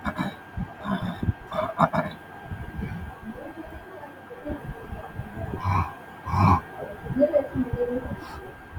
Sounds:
Throat clearing